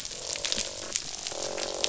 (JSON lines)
{"label": "biophony, croak", "recorder": "SoundTrap 500"}